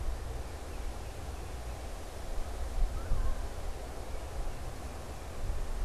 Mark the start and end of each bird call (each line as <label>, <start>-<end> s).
Tufted Titmouse (Baeolophus bicolor), 0.0-5.8 s